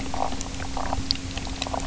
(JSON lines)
{"label": "biophony", "recorder": "SoundTrap 300"}